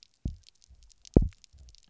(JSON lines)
{"label": "biophony, double pulse", "recorder": "SoundTrap 300"}